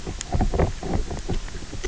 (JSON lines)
{"label": "biophony, knock croak", "recorder": "SoundTrap 300"}